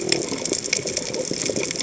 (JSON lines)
{"label": "biophony", "recorder": "HydroMoth"}